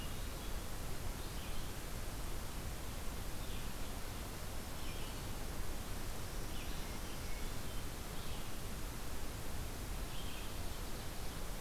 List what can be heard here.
Red-eyed Vireo